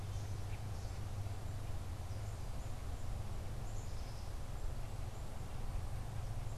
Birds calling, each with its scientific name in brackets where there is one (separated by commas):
Black-capped Chickadee (Poecile atricapillus), Common Grackle (Quiscalus quiscula)